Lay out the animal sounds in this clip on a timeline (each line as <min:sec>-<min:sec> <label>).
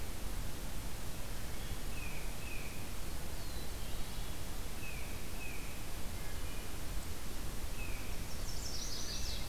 0:01.7-0:02.9 Tufted Titmouse (Baeolophus bicolor)
0:02.8-0:04.7 Black-throated Blue Warbler (Setophaga caerulescens)
0:04.6-0:05.8 Tufted Titmouse (Baeolophus bicolor)
0:06.1-0:06.8 Wood Thrush (Hylocichla mustelina)
0:07.7-0:08.3 Tufted Titmouse (Baeolophus bicolor)
0:08.0-0:09.5 Chestnut-sided Warbler (Setophaga pensylvanica)